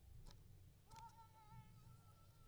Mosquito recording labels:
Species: mosquito; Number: one; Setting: cup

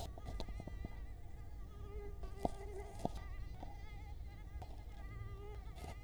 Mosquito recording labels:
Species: Culex quinquefasciatus; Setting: cup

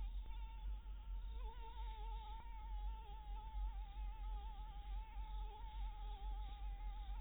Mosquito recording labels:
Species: Anopheles dirus; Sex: female; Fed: blood-fed; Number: one; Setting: cup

